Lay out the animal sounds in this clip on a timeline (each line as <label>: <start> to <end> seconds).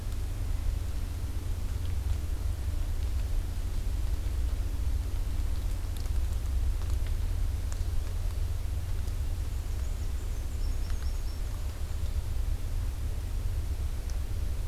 Black-and-white Warbler (Mniotilta varia): 9.4 to 12.2 seconds